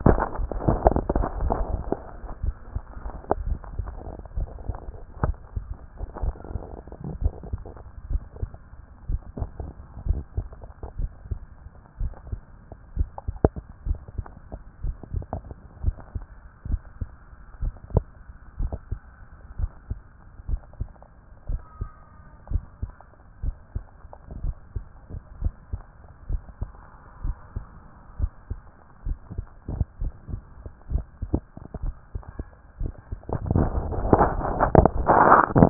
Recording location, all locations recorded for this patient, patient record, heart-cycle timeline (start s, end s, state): tricuspid valve (TV)
aortic valve (AV)+pulmonary valve (PV)+tricuspid valve (TV)+mitral valve (MV)
#Age: Adolescent
#Sex: Male
#Height: 166.0 cm
#Weight: 62.7 kg
#Pregnancy status: False
#Murmur: Absent
#Murmur locations: nan
#Most audible location: nan
#Systolic murmur timing: nan
#Systolic murmur shape: nan
#Systolic murmur grading: nan
#Systolic murmur pitch: nan
#Systolic murmur quality: nan
#Diastolic murmur timing: nan
#Diastolic murmur shape: nan
#Diastolic murmur grading: nan
#Diastolic murmur pitch: nan
#Diastolic murmur quality: nan
#Outcome: Abnormal
#Campaign: 2014 screening campaign
0.00	3.44	unannotated
3.44	3.58	S1
3.58	3.78	systole
3.78	3.88	S2
3.88	4.36	diastole
4.36	4.48	S1
4.48	4.66	systole
4.66	4.76	S2
4.76	5.22	diastole
5.22	5.36	S1
5.36	5.56	systole
5.56	5.64	S2
5.64	6.22	diastole
6.22	6.34	S1
6.34	6.52	systole
6.52	6.62	S2
6.62	7.20	diastole
7.20	7.34	S1
7.34	7.52	systole
7.52	7.60	S2
7.60	8.10	diastole
8.10	8.22	S1
8.22	8.40	systole
8.40	8.50	S2
8.50	9.08	diastole
9.08	9.20	S1
9.20	9.40	systole
9.40	9.50	S2
9.50	10.06	diastole
10.06	10.22	S1
10.22	10.36	systole
10.36	10.46	S2
10.46	10.98	diastole
10.98	11.10	S1
11.10	11.30	systole
11.30	11.40	S2
11.40	12.00	diastole
12.00	12.12	S1
12.12	12.30	systole
12.30	12.40	S2
12.40	12.96	diastole
12.96	13.08	S1
13.08	13.28	systole
13.28	13.36	S2
13.36	13.86	diastole
13.86	13.98	S1
13.98	14.16	systole
14.16	14.26	S2
14.26	14.84	diastole
14.84	14.96	S1
14.96	15.14	systole
15.14	15.24	S2
15.24	15.84	diastole
15.84	15.96	S1
15.96	16.14	systole
16.14	16.24	S2
16.24	16.68	diastole
16.68	16.80	S1
16.80	17.00	systole
17.00	17.08	S2
17.08	17.62	diastole
17.62	17.74	S1
17.74	17.94	systole
17.94	18.04	S2
18.04	18.60	diastole
18.60	18.72	S1
18.72	18.90	systole
18.90	19.00	S2
19.00	19.58	diastole
19.58	19.70	S1
19.70	19.90	systole
19.90	19.98	S2
19.98	20.48	diastole
20.48	20.60	S1
20.60	20.80	systole
20.80	20.88	S2
20.88	21.48	diastole
21.48	21.62	S1
21.62	21.80	systole
21.80	21.90	S2
21.90	22.50	diastole
22.50	22.64	S1
22.64	22.82	systole
22.82	22.92	S2
22.92	23.44	diastole
23.44	23.56	S1
23.56	23.74	systole
23.74	23.84	S2
23.84	24.42	diastole
24.42	24.54	S1
24.54	24.76	systole
24.76	24.84	S2
24.84	25.42	diastole
25.42	25.54	S1
25.54	25.72	systole
25.72	25.82	S2
25.82	26.30	diastole
26.30	26.42	S1
26.42	26.60	systole
26.60	26.70	S2
26.70	27.24	diastole
27.24	27.36	S1
27.36	27.56	systole
27.56	27.64	S2
27.64	28.20	diastole
28.20	28.32	S1
28.32	28.50	systole
28.50	28.60	S2
28.60	29.06	diastole
29.06	35.70	unannotated